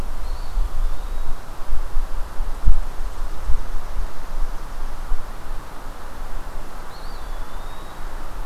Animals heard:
Eastern Wood-Pewee (Contopus virens)

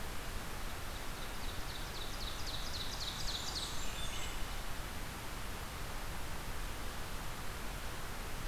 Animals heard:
Ovenbird (Seiurus aurocapilla), Blackburnian Warbler (Setophaga fusca), Wood Thrush (Hylocichla mustelina)

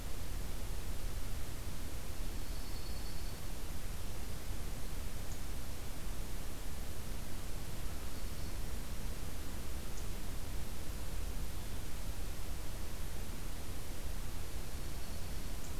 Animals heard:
Dark-eyed Junco (Junco hyemalis)

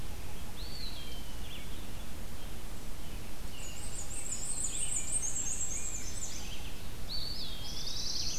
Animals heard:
Red-eyed Vireo (Vireo olivaceus), American Robin (Turdus migratorius), Eastern Wood-Pewee (Contopus virens), Black-and-white Warbler (Mniotilta varia), Rose-breasted Grosbeak (Pheucticus ludovicianus), Black-throated Blue Warbler (Setophaga caerulescens)

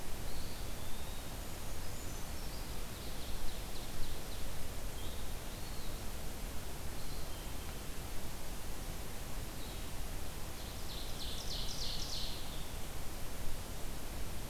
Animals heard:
Ovenbird (Seiurus aurocapilla), Brown Creeper (Certhia americana), Eastern Wood-Pewee (Contopus virens), Red-eyed Vireo (Vireo olivaceus)

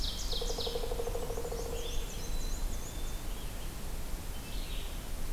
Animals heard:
Red-eyed Vireo (Vireo olivaceus), Black-and-white Warbler (Mniotilta varia), Black-capped Chickadee (Poecile atricapillus), Pileated Woodpecker (Dryocopus pileatus), Ovenbird (Seiurus aurocapilla)

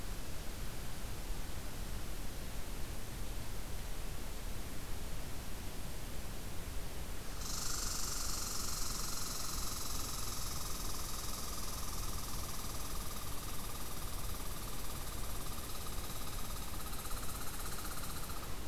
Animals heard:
Red Squirrel (Tamiasciurus hudsonicus)

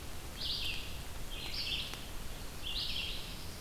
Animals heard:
Red-eyed Vireo (Vireo olivaceus)

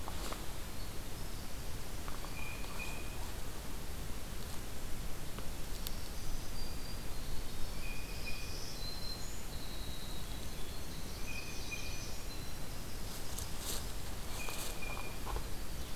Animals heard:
Blue Jay (Cyanocitta cristata), Winter Wren (Troglodytes hiemalis), Black-throated Green Warbler (Setophaga virens)

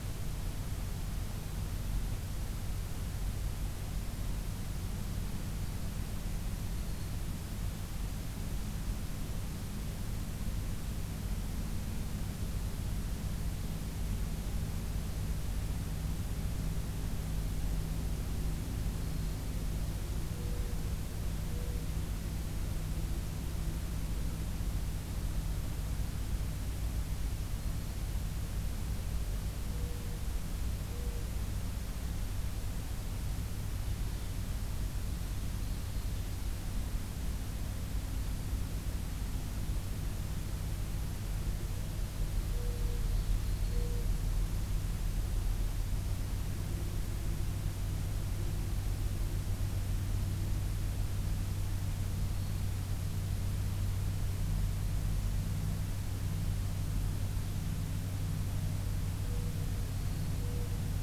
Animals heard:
Black-throated Green Warbler (Setophaga virens), Mourning Dove (Zenaida macroura)

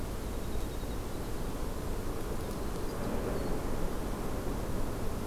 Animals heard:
Winter Wren (Troglodytes hiemalis)

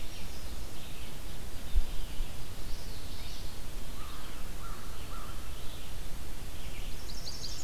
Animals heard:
Red-eyed Vireo (Vireo olivaceus), American Crow (Corvus brachyrhynchos), Chestnut-sided Warbler (Setophaga pensylvanica), Common Yellowthroat (Geothlypis trichas)

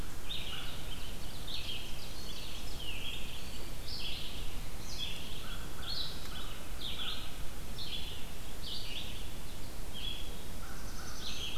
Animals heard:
Red-eyed Vireo (Vireo olivaceus), Ovenbird (Seiurus aurocapilla), Black-throated Blue Warbler (Setophaga caerulescens), American Crow (Corvus brachyrhynchos)

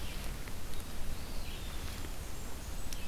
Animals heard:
Red-eyed Vireo (Vireo olivaceus), Blackburnian Warbler (Setophaga fusca), Eastern Wood-Pewee (Contopus virens)

